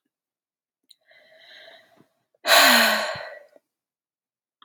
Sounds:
Sigh